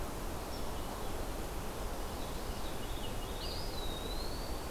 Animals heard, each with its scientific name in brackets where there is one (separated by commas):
Veery (Catharus fuscescens), Eastern Wood-Pewee (Contopus virens)